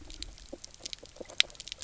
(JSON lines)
{"label": "biophony, knock croak", "recorder": "SoundTrap 300"}